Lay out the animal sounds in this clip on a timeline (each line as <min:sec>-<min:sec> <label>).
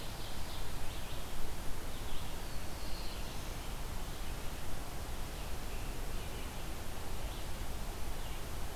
0:00.0-0:01.1 Ovenbird (Seiurus aurocapilla)
0:00.0-0:08.8 Red-eyed Vireo (Vireo olivaceus)
0:02.3-0:03.7 Black-throated Blue Warbler (Setophaga caerulescens)